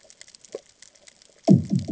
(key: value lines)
label: anthrophony, bomb
recorder: HydroMoth